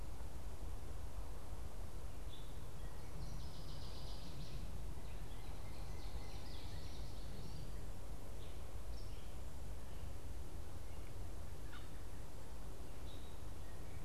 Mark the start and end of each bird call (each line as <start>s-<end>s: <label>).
2.2s-2.7s: Gray Catbird (Dumetella carolinensis)
2.8s-4.7s: Northern Waterthrush (Parkesia noveboracensis)
5.0s-7.9s: Northern Cardinal (Cardinalis cardinalis)
5.8s-7.9s: Common Yellowthroat (Geothlypis trichas)
8.3s-14.0s: Gray Catbird (Dumetella carolinensis)